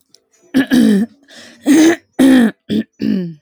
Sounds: Throat clearing